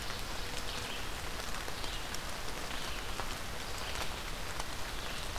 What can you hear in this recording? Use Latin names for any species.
Seiurus aurocapilla, Vireo olivaceus